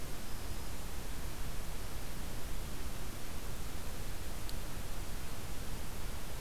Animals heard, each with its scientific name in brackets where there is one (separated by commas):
Black-throated Green Warbler (Setophaga virens)